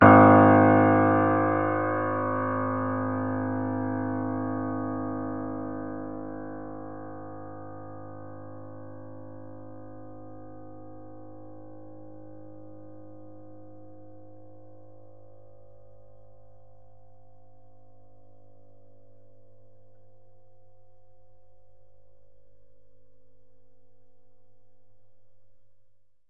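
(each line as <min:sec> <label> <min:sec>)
0:00.0 A single sustained piano note resonates clearly in a quiet indoor space. 0:26.3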